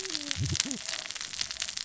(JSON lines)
{"label": "biophony, cascading saw", "recorder": "SoundTrap 600 or HydroMoth"}